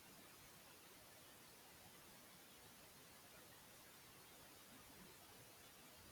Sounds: Laughter